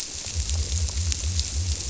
{"label": "biophony", "recorder": "SoundTrap 300"}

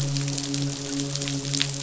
{"label": "biophony, midshipman", "recorder": "SoundTrap 500"}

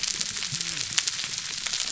{"label": "biophony, whup", "recorder": "SoundTrap 300"}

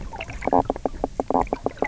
{"label": "biophony, knock croak", "recorder": "SoundTrap 300"}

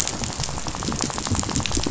{"label": "biophony, rattle", "recorder": "SoundTrap 500"}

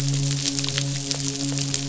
{"label": "biophony, midshipman", "recorder": "SoundTrap 500"}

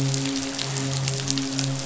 {"label": "biophony, midshipman", "recorder": "SoundTrap 500"}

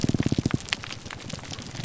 {"label": "biophony, grouper groan", "recorder": "SoundTrap 300"}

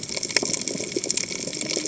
{"label": "biophony, cascading saw", "recorder": "HydroMoth"}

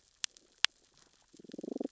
{"label": "biophony, damselfish", "recorder": "SoundTrap 600 or HydroMoth"}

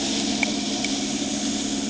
{"label": "anthrophony, boat engine", "recorder": "HydroMoth"}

